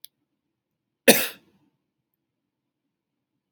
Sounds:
Cough